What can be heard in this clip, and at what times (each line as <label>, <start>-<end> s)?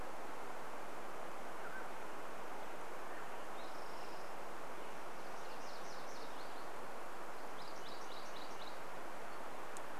Mountain Quail call, 0-4 s
Spotted Towhee song, 2-6 s
MacGillivray's Warbler song, 4-10 s